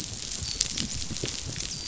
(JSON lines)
{"label": "biophony, dolphin", "recorder": "SoundTrap 500"}